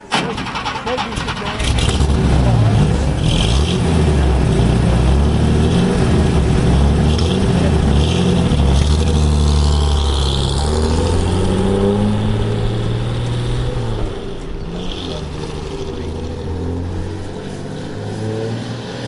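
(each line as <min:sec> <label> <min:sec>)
0:00.0 A car engine revs briefly before settling into an idle, followed by the vehicle pulling away. 0:19.1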